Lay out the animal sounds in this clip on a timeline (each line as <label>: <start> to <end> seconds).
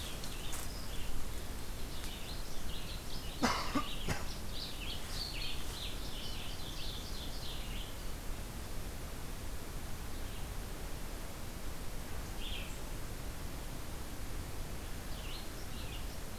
Red-eyed Vireo (Vireo olivaceus): 0.0 to 7.9 seconds
Ovenbird (Seiurus aurocapilla): 5.8 to 7.6 seconds
Red-eyed Vireo (Vireo olivaceus): 12.2 to 16.4 seconds